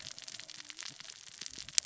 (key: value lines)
label: biophony, cascading saw
recorder: SoundTrap 600 or HydroMoth